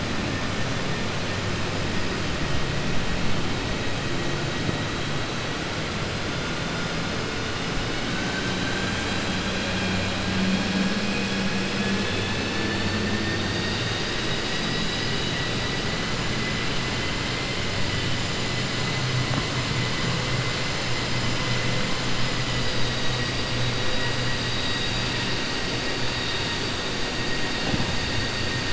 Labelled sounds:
8.1	10.2	vessel noise, 0.75 to 4.1 kHz
11.0	13.0	vessel noise, 1.7 to 4.5 kHz

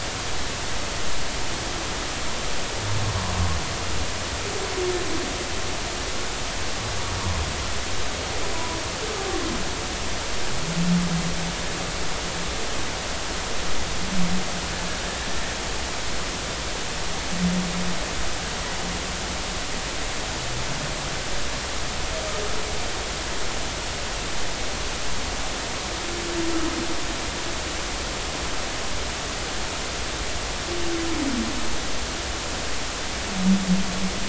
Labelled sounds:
8.5	8.8	humpback whale, 0.90 to 1.0 kHz

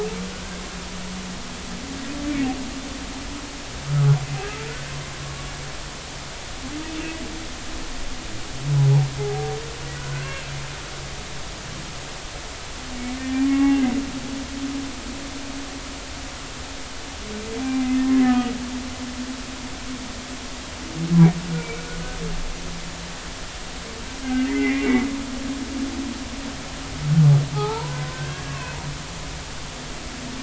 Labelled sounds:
9.2	10.4	humpback whale, 0.80 to 1.7 kHz
13.2	13.8	humpback whale, 0.80 to 2.8 kHz
17.6	18.5	humpback whale, 0.80 to 2.1 kHz
21.5	21.8	humpback whale, 2.2 to 2.4 kHz
24.2	25.1	humpback whale, 1.5 to 2.9 kHz
27.5	28.8	humpback whale, 0.80 to 2.8 kHz

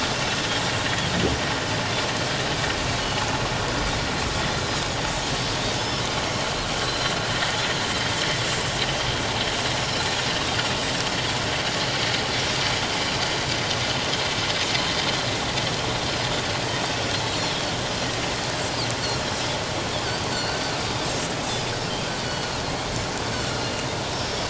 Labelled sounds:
5.8	6.0	Pacific white-sided dolphin, 5.1 to 5.5 kHz
6.8	7.2	Pacific white-sided dolphin, 3.8 to 4.2 kHz
20.3	20.5	Pacific white-sided dolphin, 4.2 to 4.6 kHz
22.2	22.5	Pacific white-sided dolphin, 2.9 to 4.5 kHz
23.3	23.9	Pacific white-sided dolphin, 1.3 to 4.6 kHz

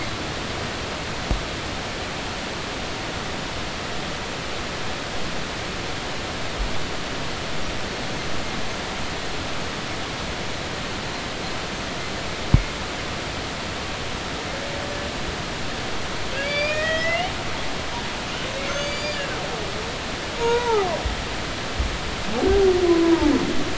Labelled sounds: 16.4	17.3	humpback whale, 1.8 to 5.0 kHz
18.7	19.3	humpback whale, 1.6 to 7.1 kHz
20.4	20.9	humpback whale, 0.80 to 1.5 kHz
22.8	23.3	humpback whale, 0.83 to 1.1 kHz

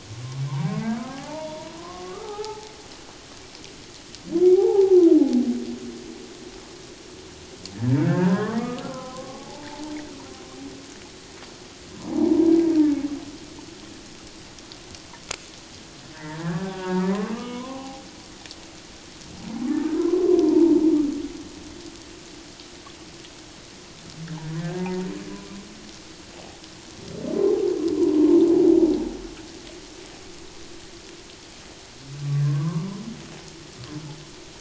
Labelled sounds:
0.1	2.7	humpback whale, 0.78 to 1.4 kHz
4.4	5.0	humpback whale, 0.78 to 0.94 kHz
7.7	9.9	humpback whale, 0.78 to 2.3 kHz
12.3	12.5	humpback whale, 0.88 to 1.0 kHz
16.1	18.0	humpback whale, 0.78 to 3.0 kHz
20.0	20.4	humpback whale, 0.94 to 1.2 kHz
24.5	25.1	humpback whale, 0.78 to 1.8 kHz
26.3	26.6	humpback whale, 0.78 to 0.91 kHz
32.4	32.9	humpback whale, 0.88 to 1.2 kHz

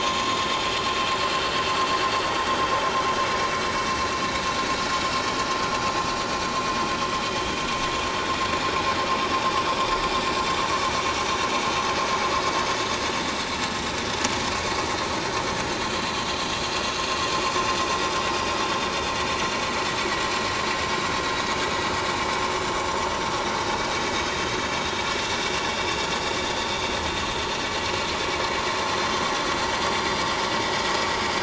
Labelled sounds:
1.1	1.7	vessel noise, 1.3 to 7.4 kHz
1.9	2.2	vessel noise, 4.5 to 4.8 kHz
25.9	26.1	vessel noise, 3.4 to 3.6 kHz
30.1	30.4	vessel noise, 4.7 to 5.1 kHz

